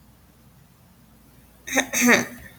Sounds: Throat clearing